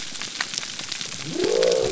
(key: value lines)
label: biophony
recorder: SoundTrap 300